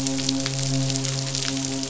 {"label": "biophony, midshipman", "recorder": "SoundTrap 500"}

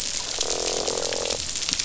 {"label": "biophony, croak", "recorder": "SoundTrap 500"}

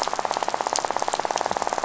{"label": "biophony, rattle", "recorder": "SoundTrap 500"}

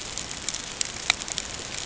{"label": "ambient", "recorder": "HydroMoth"}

